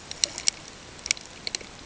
{"label": "ambient", "recorder": "HydroMoth"}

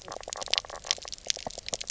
{"label": "biophony, knock croak", "recorder": "SoundTrap 300"}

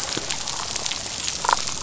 {"label": "biophony, damselfish", "recorder": "SoundTrap 500"}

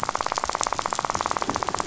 {"label": "biophony, rattle", "recorder": "SoundTrap 500"}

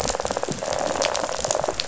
{"label": "biophony, rattle", "recorder": "SoundTrap 500"}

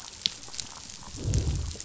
{"label": "biophony, growl", "recorder": "SoundTrap 500"}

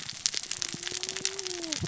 {"label": "biophony, cascading saw", "recorder": "SoundTrap 600 or HydroMoth"}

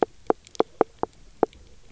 {"label": "biophony, knock croak", "recorder": "SoundTrap 300"}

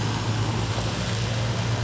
{"label": "anthrophony, boat engine", "recorder": "SoundTrap 500"}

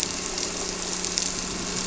{"label": "anthrophony, boat engine", "recorder": "SoundTrap 300"}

